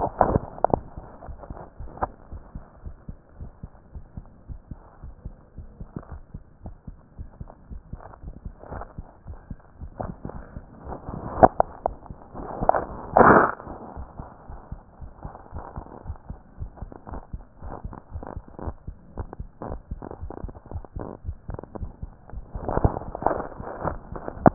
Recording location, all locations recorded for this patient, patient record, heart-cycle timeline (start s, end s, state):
aortic valve (AV)
aortic valve (AV)+pulmonary valve (PV)+tricuspid valve (TV)+mitral valve (MV)
#Age: Child
#Sex: Female
#Height: 146.0 cm
#Weight: 35.1 kg
#Pregnancy status: False
#Murmur: Absent
#Murmur locations: nan
#Most audible location: nan
#Systolic murmur timing: nan
#Systolic murmur shape: nan
#Systolic murmur grading: nan
#Systolic murmur pitch: nan
#Systolic murmur quality: nan
#Diastolic murmur timing: nan
#Diastolic murmur shape: nan
#Diastolic murmur grading: nan
#Diastolic murmur pitch: nan
#Diastolic murmur quality: nan
#Outcome: Normal
#Campaign: 2015 screening campaign
0.00	2.31	unannotated
2.31	2.44	S1
2.44	2.52	systole
2.52	2.62	S2
2.62	2.84	diastole
2.84	2.94	S1
2.94	3.06	systole
3.06	3.16	S2
3.16	3.38	diastole
3.38	3.52	S1
3.52	3.60	systole
3.60	3.70	S2
3.70	3.94	diastole
3.94	4.04	S1
4.04	4.14	systole
4.14	4.24	S2
4.24	4.48	diastole
4.48	4.62	S1
4.62	4.70	systole
4.70	4.80	S2
4.80	5.02	diastole
5.02	5.14	S1
5.14	5.24	systole
5.24	5.34	S2
5.34	5.56	diastole
5.56	5.70	S1
5.70	5.78	systole
5.78	5.88	S2
5.88	6.10	diastole
6.10	6.22	S1
6.22	6.32	systole
6.32	6.42	S2
6.42	6.64	diastole
6.64	6.76	S1
6.76	6.86	systole
6.86	6.96	S2
6.96	7.18	diastole
7.18	7.28	S1
7.28	7.38	systole
7.38	7.48	S2
7.48	7.70	diastole
7.70	7.82	S1
7.82	7.90	systole
7.90	8.00	S2
8.00	8.24	diastole
8.24	8.36	S1
8.36	8.44	systole
8.44	8.54	S2
8.54	8.72	diastole
8.72	8.86	S1
8.86	8.96	systole
8.96	9.06	S2
9.06	9.28	diastole
9.28	9.40	S1
9.40	9.48	systole
9.48	9.58	S2
9.58	9.80	diastole
9.80	9.94	S1
9.94	9.98	systole
9.98	10.14	S2
10.14	10.36	diastole
10.36	10.46	S1
10.46	10.54	systole
10.54	10.64	S2
10.64	10.84	diastole
10.84	10.98	S1
10.98	11.06	systole
11.06	11.18	S2
11.18	11.36	diastole
11.36	24.54	unannotated